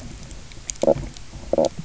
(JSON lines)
{"label": "biophony, knock croak", "recorder": "SoundTrap 300"}